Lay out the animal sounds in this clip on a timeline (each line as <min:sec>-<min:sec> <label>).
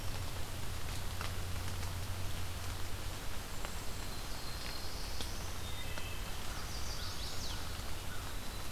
0:03.4-0:04.1 Cedar Waxwing (Bombycilla cedrorum)
0:03.8-0:05.5 Black-throated Blue Warbler (Setophaga caerulescens)
0:05.6-0:06.3 Wood Thrush (Hylocichla mustelina)
0:06.3-0:08.3 American Crow (Corvus brachyrhynchos)
0:06.5-0:07.6 Chestnut-sided Warbler (Setophaga pensylvanica)
0:08.0-0:08.7 Eastern Wood-Pewee (Contopus virens)